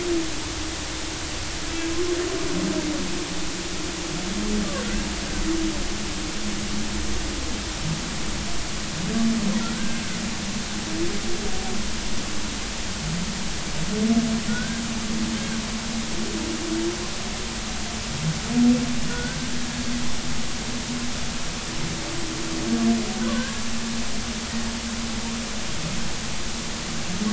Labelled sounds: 9.7	10.0	humpback whale, 1.4 to 1.6 kHz
14.5	15.6	humpback whale, 1.4 to 1.7 kHz
19.1	19.4	humpback whale, 1.4 to 1.6 kHz
23.3	23.6	humpback whale, 1.5 to 1.7 kHz

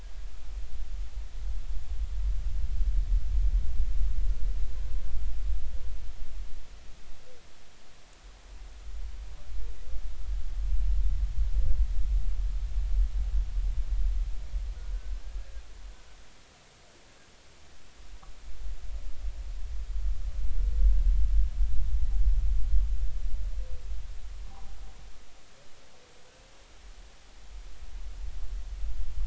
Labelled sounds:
14.9	15.2	humpback whale, 1.5 to 1.6 kHz
24.5	24.8	humpback whale, 0.80 to 0.86 kHz

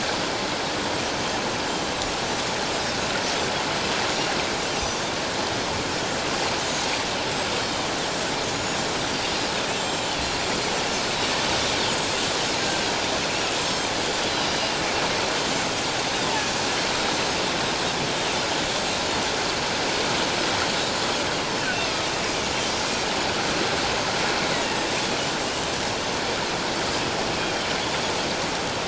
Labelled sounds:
4.8	5.0	Pacific white-sided dolphin, 4.6 to 5.0 kHz
7.6	8.8	Pacific white-sided dolphin, 3.6 to 7.1 kHz
9.7	10.2	Pacific white-sided dolphin, 3.1 to 7.5 kHz
12.0	12.2	Pacific white-sided dolphin, 7.4 to 7.7 kHz
13.6	14.8	Pacific white-sided dolphin, 2.8 to 7.6 kHz

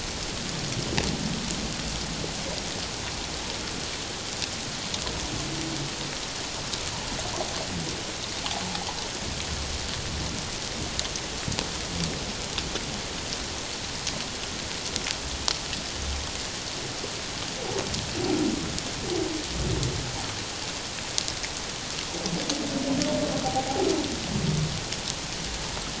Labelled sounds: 23.4	23.9	humpback whale, 0.78 to 0.88 kHz

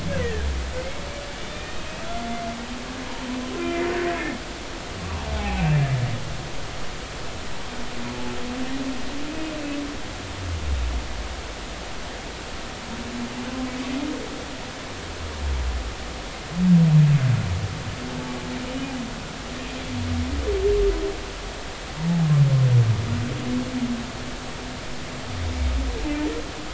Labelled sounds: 0.2	1.0	humpback whale, 1.6 to 2.3 kHz
1.3	2.0	humpback whale, 2.3 to 3.6 kHz
3.6	4.4	humpback whale, 2.0 to 2.5 kHz
5.3	5.9	humpback whale, 0.80 to 2.7 kHz

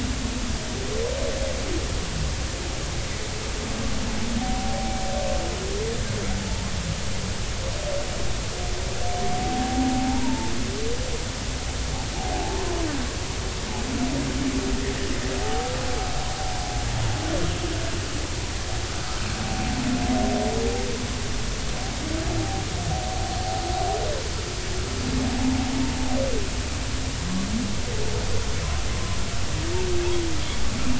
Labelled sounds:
4.4	5.0	humpback whale, 0.80 to 0.90 kHz
9.3	10.5	humpback whale, 0.80 to 0.99 kHz
12.3	12.6	humpback whale, 0.80 to 1.1 kHz
28.9	29.2	humpback whale, 0.96 to 1.1 kHz

